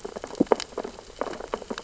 {"label": "biophony, sea urchins (Echinidae)", "recorder": "SoundTrap 600 or HydroMoth"}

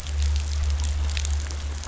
{"label": "anthrophony, boat engine", "recorder": "SoundTrap 500"}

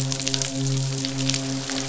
{"label": "biophony, midshipman", "recorder": "SoundTrap 500"}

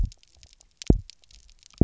{"label": "biophony, double pulse", "recorder": "SoundTrap 300"}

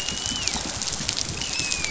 {"label": "biophony, dolphin", "recorder": "SoundTrap 500"}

